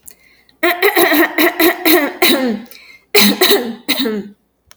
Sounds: Cough